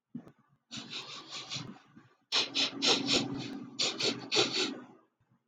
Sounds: Sniff